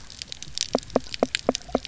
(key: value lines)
label: biophony, knock croak
recorder: SoundTrap 300